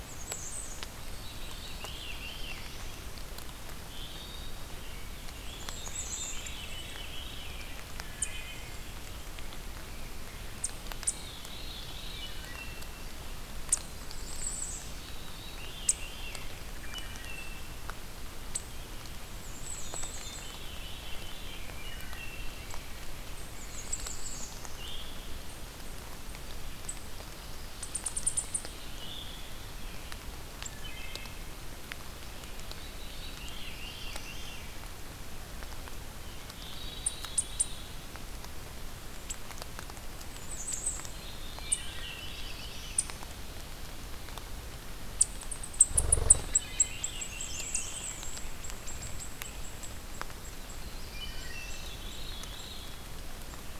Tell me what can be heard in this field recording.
Bay-breasted Warbler, Eastern Chipmunk, Veery, Black-throated Blue Warbler, Wood Thrush, Rose-breasted Grosbeak, Ruby-throated Hummingbird